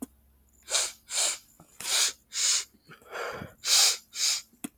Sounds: Sniff